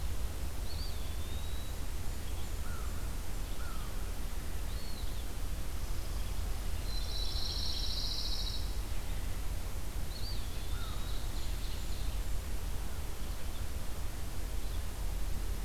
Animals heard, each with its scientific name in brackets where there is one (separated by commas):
Black-throated Blue Warbler (Setophaga caerulescens), Ovenbird (Seiurus aurocapilla), Pine Warbler (Setophaga pinus), Blackburnian Warbler (Setophaga fusca), American Crow (Corvus brachyrhynchos), Eastern Wood-Pewee (Contopus virens)